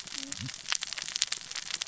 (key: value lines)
label: biophony, cascading saw
recorder: SoundTrap 600 or HydroMoth